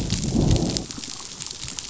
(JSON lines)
{"label": "biophony, growl", "recorder": "SoundTrap 500"}